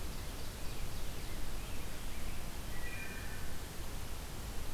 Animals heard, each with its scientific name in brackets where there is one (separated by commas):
Rose-breasted Grosbeak (Pheucticus ludovicianus), Wood Thrush (Hylocichla mustelina), Ovenbird (Seiurus aurocapilla)